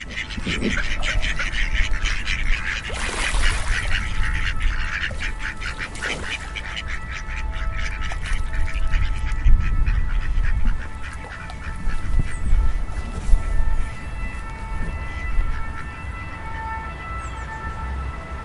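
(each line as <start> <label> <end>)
0.1 Quacking sounds from ducks, irregularly repeating. 2.8
3.1 Ducks splashing in natural water sounds near a lake. 4.4
6.4 An urgent Euro-style ambulance siren repeats rhythmically, growing louder as it approaches and fading as it moves away. 18.4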